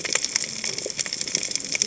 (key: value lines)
label: biophony, cascading saw
recorder: HydroMoth